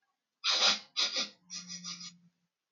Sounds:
Sniff